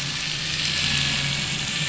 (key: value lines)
label: anthrophony, boat engine
recorder: SoundTrap 500